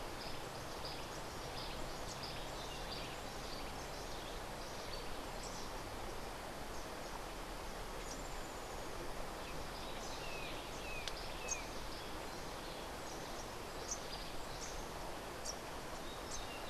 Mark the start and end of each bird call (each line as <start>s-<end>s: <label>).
0.0s-4.0s: Cabanis's Wren (Cantorchilus modestus)
10.2s-11.7s: Brown Jay (Psilorhinus morio)